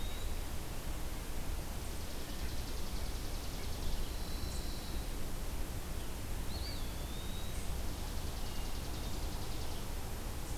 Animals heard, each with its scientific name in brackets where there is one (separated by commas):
Red-breasted Nuthatch (Sitta canadensis), Hermit Thrush (Catharus guttatus), Chipping Sparrow (Spizella passerina), Pine Warbler (Setophaga pinus), Eastern Wood-Pewee (Contopus virens)